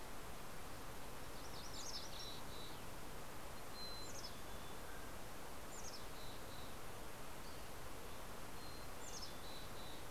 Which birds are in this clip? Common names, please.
MacGillivray's Warbler, Mountain Chickadee, Mountain Quail, Dusky Flycatcher